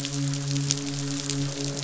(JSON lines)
{"label": "biophony, croak", "recorder": "SoundTrap 500"}
{"label": "biophony, midshipman", "recorder": "SoundTrap 500"}